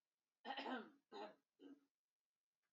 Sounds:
Throat clearing